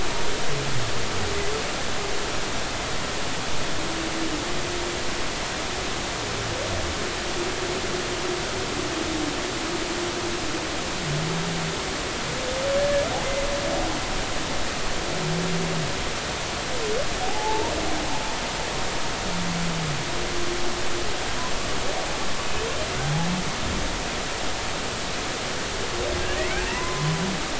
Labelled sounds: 17.2	17.7	humpback whale, 0.80 to 0.99 kHz
26.4	27.1	humpback whale, 0.86 to 2.5 kHz

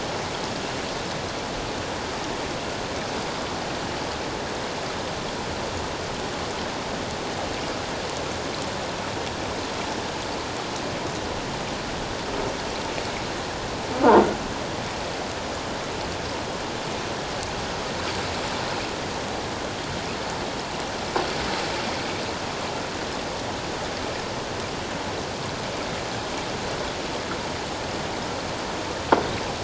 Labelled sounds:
14.0	14.3	croaking sound likely from a nearby submerged object, 1.4 to 1.5 kHz

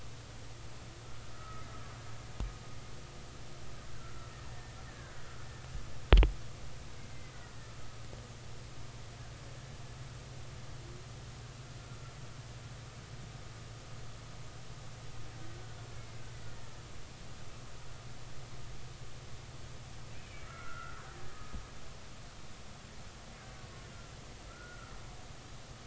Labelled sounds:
1.3	1.7	killer whale, Bigg's (transient), 1.2 to 1.4 kHz
4.5	5.2	killer whale, Bigg's (transient), 1.4 to 1.9 kHz
16.0	16.2	killer whale, Bigg's (transient), 2.0 to 2.2 kHz
20.4	21.0	killer whale, Bigg's (transient), 1.2 to 1.5 kHz
24.5	24.9	killer whale, Bigg's (transient), 1.2 to 1.5 kHz

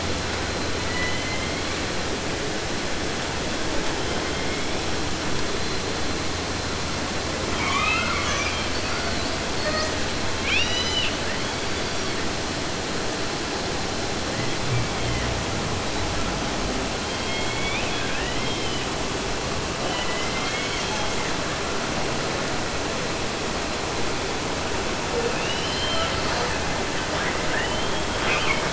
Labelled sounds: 0.7	2.0	killer whale, southern resident, J pod, call S01, 0.50 to 5.6 kHz
3.8	4.9	killer whale, 1.1 to 3.5 kHz
7.5	9.4	killer whale, 0.50 to 8.0 kHz
9.5	10.3	killer whale, southern resident, J pod, call S42, 0.16 to 8.0 kHz
10.3	11.2	killer whale, southern resident, J pod, call S44, 0.50 to 7.9 kHz
11.2	12.2	killer whale, 0.47 to 7.9 kHz
14.3	15.4	killer whale, 0.64 to 3.9 kHz
17.0	19.0	killer whale, southern resident, 0.50 to 6.2 kHz
19.8	21.4	killer whale, southern resident, J pod, call S01, 0.50 to 3.8 kHz
25.1	26.7	killer whale, southern resident, 0.25 to 6.8 kHz
26.9	28.7	killer whale, 0.16 to 6.5 kHz

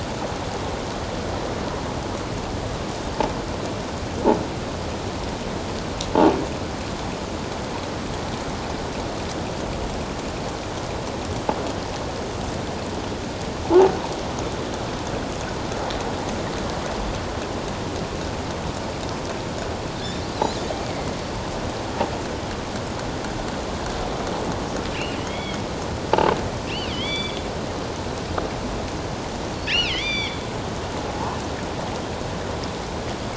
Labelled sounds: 20.3	20.6	killer whale, offshore, 3.8 to 4.2 kHz
25.2	25.6	killer whale, offshore, 1.9 to 3.5 kHz
26.9	27.4	killer whale, offshore, 2.0 to 4.8 kHz
29.6	30.4	killer whale, offshore, 1.9 to 6.0 kHz
31.1	31.4	killer whale, offshore, 0.81 to 1.2 kHz

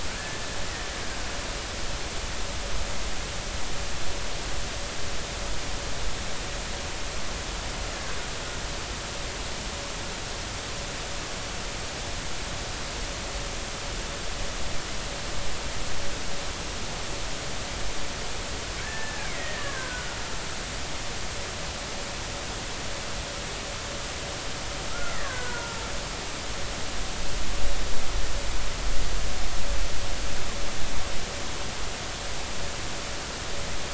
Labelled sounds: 18.8	20.2	killer whale, Bigg's (transient), 1.4 to 2.3 kHz
24.9	25.8	killer whale, Bigg's (transient), 0.90 to 2.1 kHz

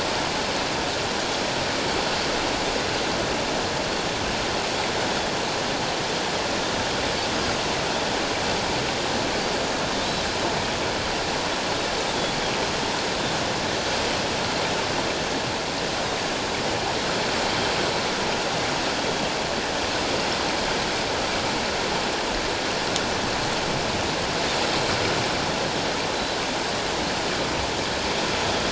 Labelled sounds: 26.1	26.4	Pacific white-sided dolphin, 3.9 to 4.2 kHz

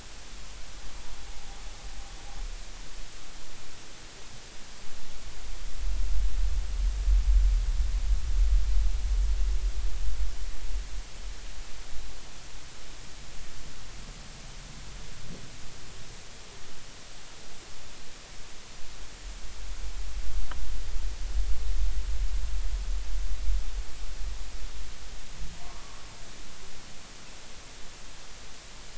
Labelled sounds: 25.6	26.0	humpback whale, 1.0 to 1.2 kHz

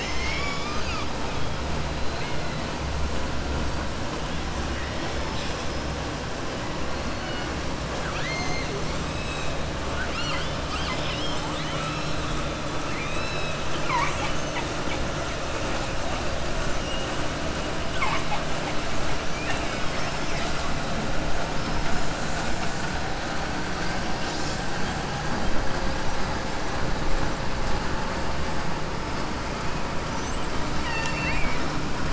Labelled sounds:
7.9	8.7	killer whale, southern resident, 1.2 to 6.7 kHz
9.9	12.3	killer whale, southern resident, 0.88 to 5.9 kHz
12.8	14.6	killer whale, southern resident, 0.87 to 7.7 kHz
30.7	31.6	killer whale, southern resident, 0.93 to 7.4 kHz

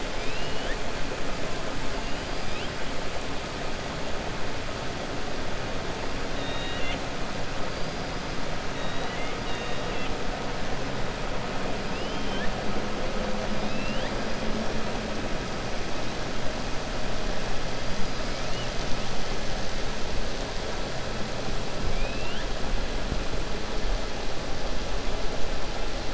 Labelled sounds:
0.1	0.8	killer whale, 1.6 to 5.1 kHz
6.3	7.0	killer whale, 1.8 to 4.0 kHz
11.9	12.5	killer whale, 1.5 to 3.3 kHz
13.6	14.1	killer whale, 1.7 to 4.4 kHz
21.9	22.5	killer whale, 1.8 to 3.6 kHz

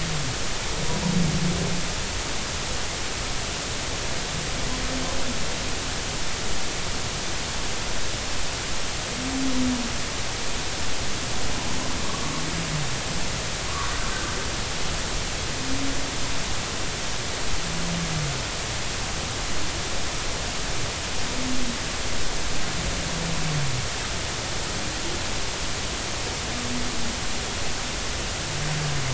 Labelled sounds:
12.1	12.4	humpback whale, 1.1 to 1.2 kHz
13.7	14.0	humpback whale, 0.93 to 1.2 kHz

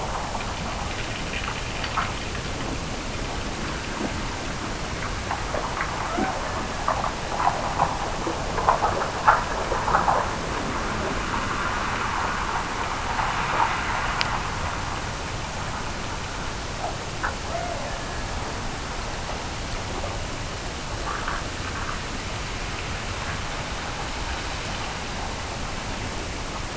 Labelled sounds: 6.0	6.8	killer whale, Bigg's (transient), Gulf of Alaska transient, 0.46 to 1.8 kHz
17.3	18.4	killer whale, Bigg's (transient), Gulf of Alaska transient, 0.40 to 2.2 kHz

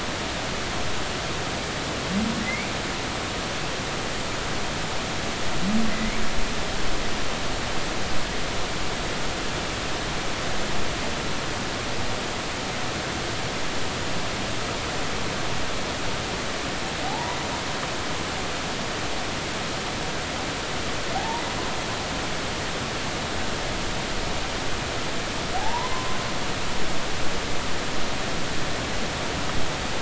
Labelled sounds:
5.9	6.2	humpback whale, 1.9 to 2.4 kHz
17.1	17.4	humpback whale, 0.80 to 1.0 kHz
21.1	21.4	humpback whale, 0.80 to 0.99 kHz
25.5	26.2	humpback whale, 0.80 to 1.1 kHz

